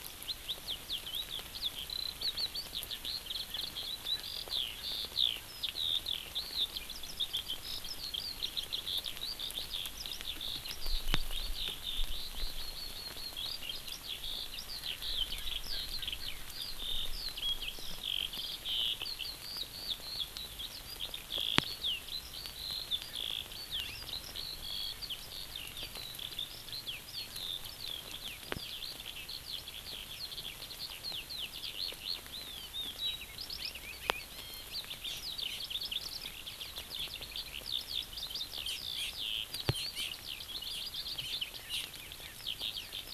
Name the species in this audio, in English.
Eurasian Skylark, Erckel's Francolin, Hawaii Amakihi